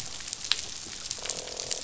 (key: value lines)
label: biophony, croak
recorder: SoundTrap 500